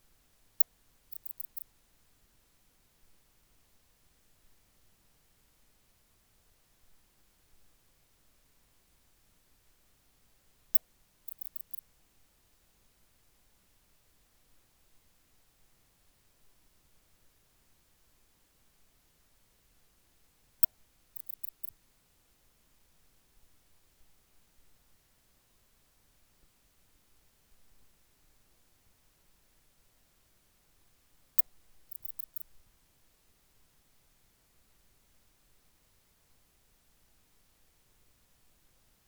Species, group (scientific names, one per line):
Poecilimon antalyaensis
Orthoptera